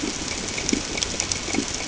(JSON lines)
{"label": "ambient", "recorder": "HydroMoth"}